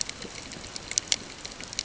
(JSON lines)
{"label": "ambient", "recorder": "HydroMoth"}